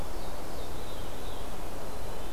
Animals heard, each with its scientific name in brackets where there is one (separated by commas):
Veery (Catharus fuscescens)